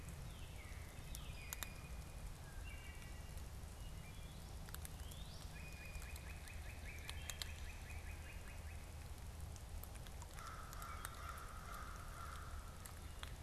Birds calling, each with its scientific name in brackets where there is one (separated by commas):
Wood Thrush (Hylocichla mustelina), Northern Cardinal (Cardinalis cardinalis), Blue Jay (Cyanocitta cristata), American Crow (Corvus brachyrhynchos)